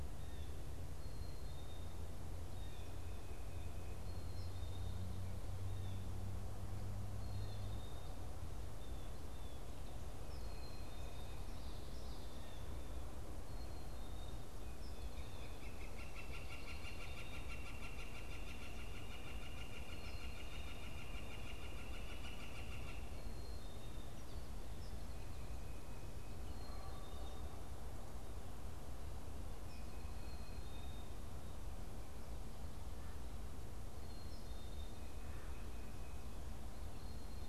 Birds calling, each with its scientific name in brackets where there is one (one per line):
Blue Jay (Cyanocitta cristata)
Tufted Titmouse (Baeolophus bicolor)
Black-capped Chickadee (Poecile atricapillus)
Northern Flicker (Colaptes auratus)